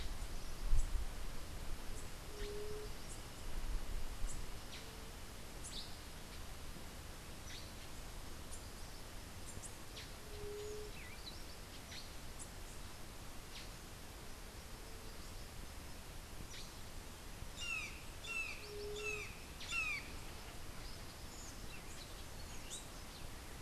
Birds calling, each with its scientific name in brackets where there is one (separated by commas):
Buff-throated Saltator (Saltator maximus), White-tipped Dove (Leptotila verreauxi), Brown Jay (Psilorhinus morio), Black-headed Saltator (Saltator atriceps), Rufous-capped Warbler (Basileuterus rufifrons)